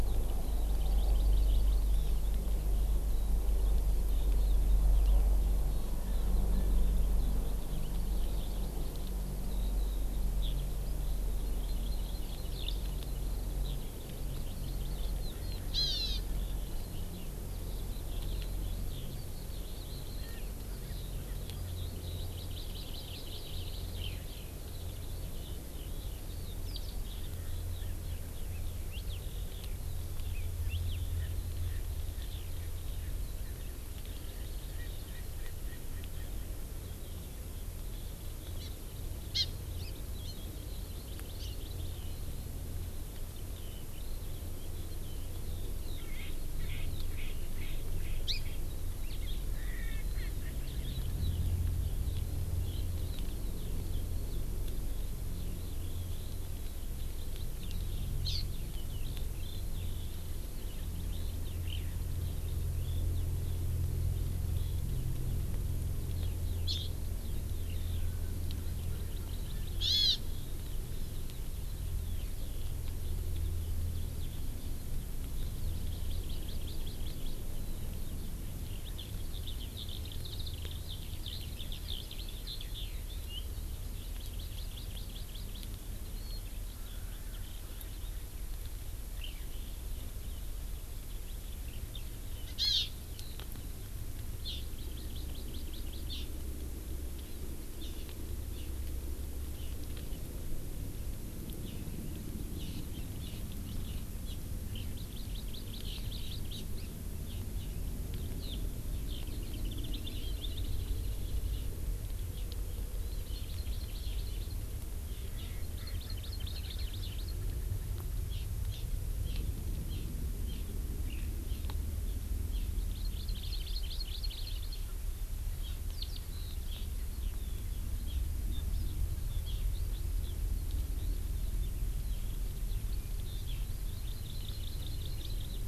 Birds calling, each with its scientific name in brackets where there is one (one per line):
Hawaii Amakihi (Chlorodrepanis virens)
Erckel's Francolin (Pternistis erckelii)
Hawaii Elepaio (Chasiempis sandwichensis)
Eurasian Skylark (Alauda arvensis)